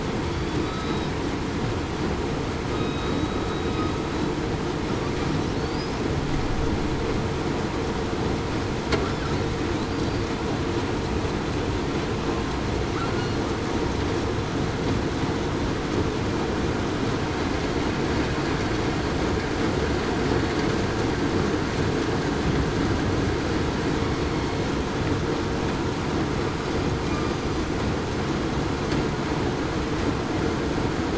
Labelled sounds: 0.6	1.1	killer whale, southern resident, 3.7 to 3.9 kHz
2.7	3.4	killer whale, southern resident, 3.7 to 3.9 kHz

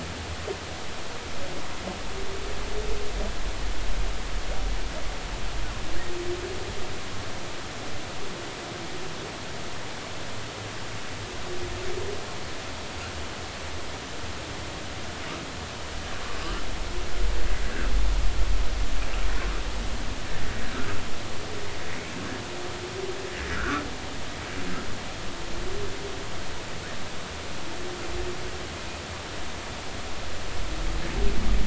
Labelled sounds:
23.5	23.8	humpback whale, 1.1 to 1.7 kHz

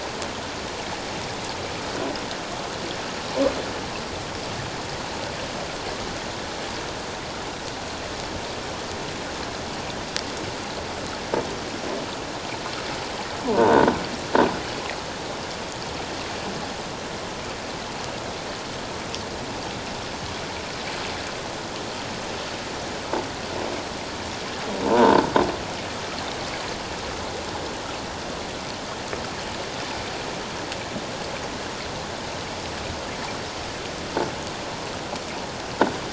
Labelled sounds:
13.4	13.8	croaking sound likely from a nearby submerged object, 0.84 to 1.6 kHz
24.9	25.2	croaking sound likely from a nearby submerged object, 0.84 to 1.1 kHz

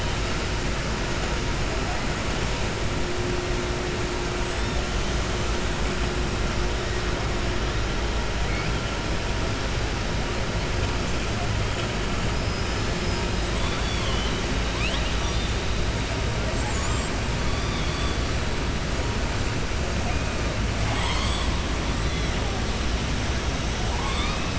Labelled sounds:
13.5	14.4	killer whale, southern resident, 1.0 to 4.6 kHz
14.7	15.5	killer whale, southern resident, 1.9 to 5.9 kHz
17.5	18.2	killer whale, southern resident, 3.3 to 4.7 kHz
23.8	24.5	killer whale, southern resident, 0.78 to 5.2 kHz

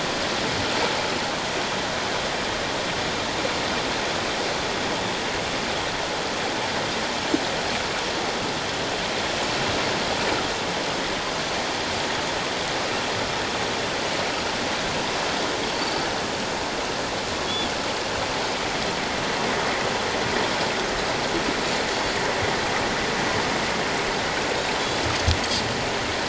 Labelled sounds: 15.8	16.0	Pacific white-sided dolphin, 4.4 to 4.7 kHz
17.5	17.7	Pacific white-sided dolphin, 3.1 to 3.5 kHz

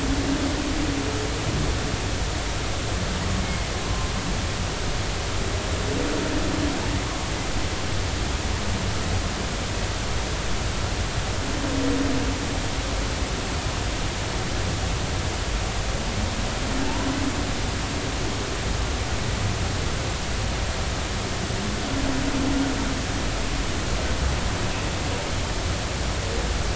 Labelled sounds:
3.4	4.1	humpback whale, 0.93 to 2.2 kHz

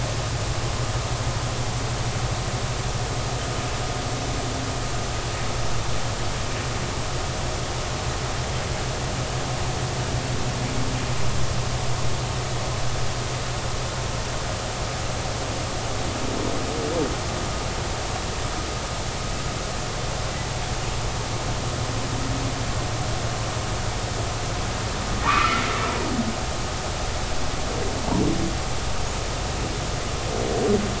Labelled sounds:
25.3	25.6	humpback whale, 1.1 to 2.6 kHz

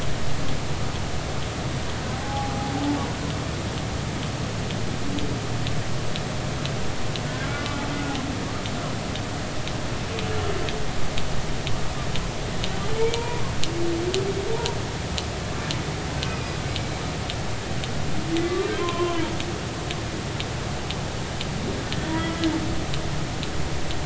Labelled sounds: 2.1	2.5	humpback whale, 0.80 to 0.90 kHz
13.0	13.5	humpback whale, 0.90 to 2.5 kHz
16.3	16.5	humpback whale, 2.3 to 2.6 kHz
18.3	19.4	humpback whale, 0.86 to 2.1 kHz
22.1	22.5	humpback whale, 1.9 to 2.0 kHz

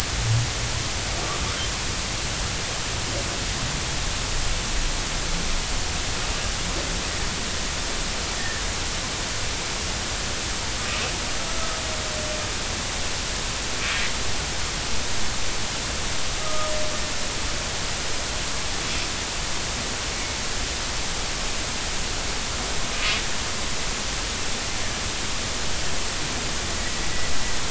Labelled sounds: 8.4	8.6	humpback whale, 1.7 to 1.9 kHz
16.4	16.7	humpback whale, 1.2 to 1.3 kHz

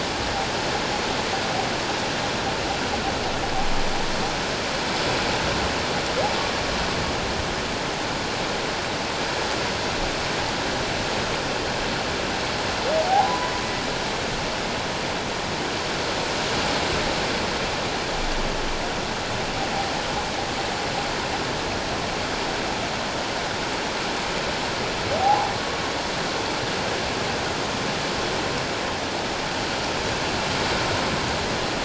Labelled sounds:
13.1	13.5	humpback whale, 0.78 to 1.1 kHz
25.2	25.5	humpback whale, 0.78 to 1.1 kHz

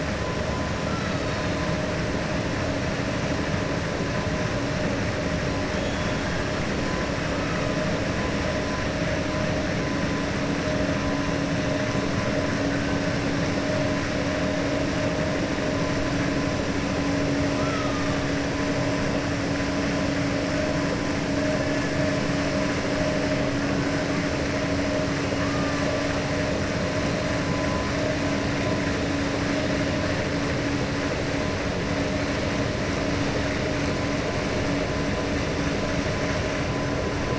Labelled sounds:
5.7	6.1	killer whale, 3.0 to 3.8 kHz

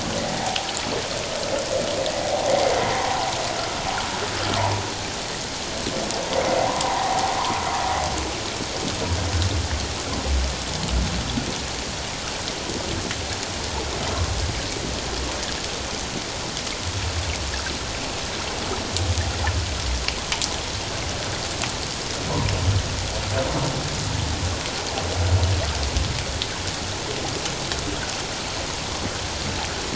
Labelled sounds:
0.4	0.7	humpback whale, 0.78 to 0.97 kHz
2.1	2.5	humpback whale, 0.78 to 0.88 kHz
2.8	3.3	humpback whale, 0.78 to 1.1 kHz
6.7	7.2	humpback whale, 0.78 to 1.1 kHz

